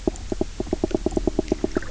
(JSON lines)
{"label": "biophony, knock croak", "recorder": "SoundTrap 300"}